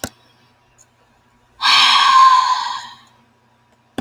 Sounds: Sigh